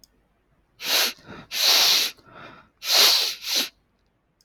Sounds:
Sniff